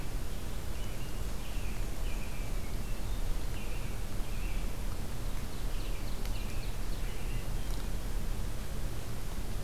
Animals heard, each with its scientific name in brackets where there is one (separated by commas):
Black-and-white Warbler (Mniotilta varia), Ovenbird (Seiurus aurocapilla), Hermit Thrush (Catharus guttatus), American Robin (Turdus migratorius)